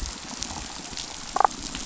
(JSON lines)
{"label": "biophony, damselfish", "recorder": "SoundTrap 500"}